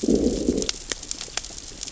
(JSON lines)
{"label": "biophony, growl", "recorder": "SoundTrap 600 or HydroMoth"}